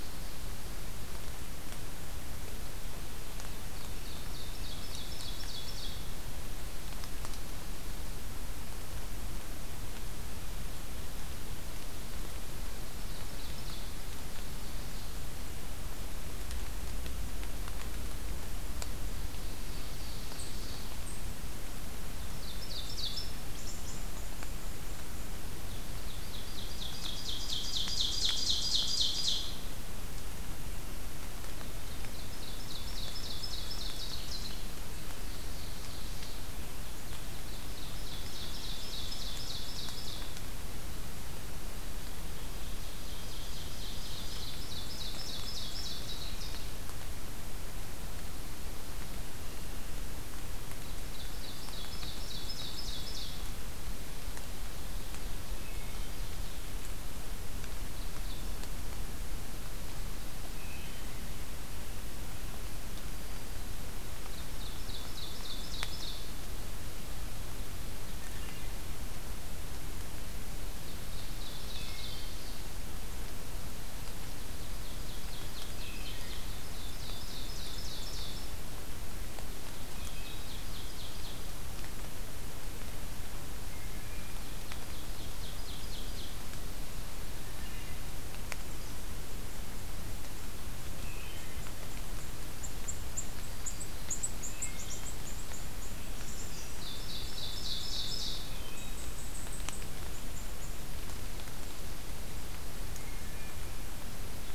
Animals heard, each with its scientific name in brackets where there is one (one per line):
Black-throated Green Warbler (Setophaga virens)
Eastern Chipmunk (Tamias striatus)
Ovenbird (Seiurus aurocapilla)
Wood Thrush (Hylocichla mustelina)